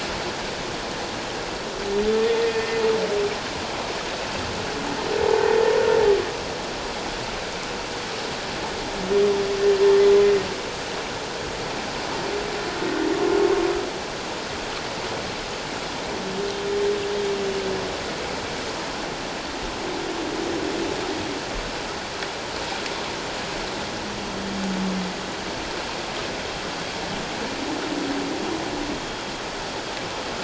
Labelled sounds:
2.2	2.8	humpback whale, 1.8 to 1.9 kHz

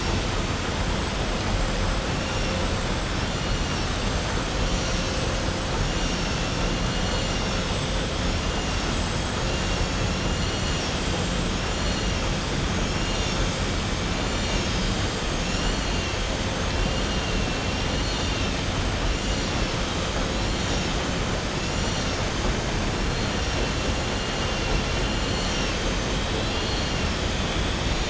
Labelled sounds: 17.9	18.5	vessel noise, 2.7 to 4.5 kHz
26.2	26.9	vessel noise, 2.8 to 4.9 kHz

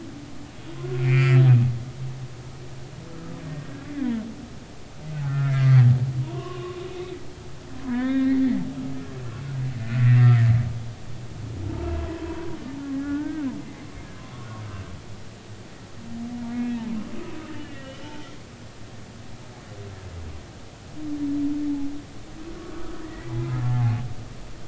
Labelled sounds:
0.9	1.4	humpback whale, 1.2 to 3.1 kHz
5.1	5.9	humpback whale, 1.2 to 2.2 kHz
6.2	6.8	humpback whale, 0.90 to 1.2 kHz
7.8	8.4	humpback whale, 0.93 to 3.8 kHz
10.0	10.3	humpback whale, 1.8 to 2.0 kHz
11.6	13.9	humpback whale, 0.80 to 2.1 kHz
17.5	18.0	humpback whale, 1.8 to 3.0 kHz
22.8	23.6	humpback whale, 0.83 to 2.0 kHz

